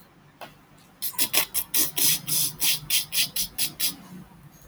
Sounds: Laughter